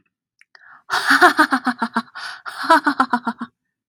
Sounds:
Laughter